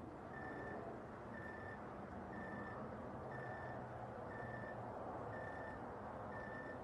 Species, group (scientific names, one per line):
Oecanthus rileyi
Orthoptera